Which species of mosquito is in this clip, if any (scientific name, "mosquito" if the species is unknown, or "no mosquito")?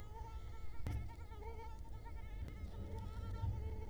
Culex quinquefasciatus